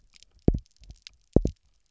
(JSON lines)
{"label": "biophony, double pulse", "recorder": "SoundTrap 300"}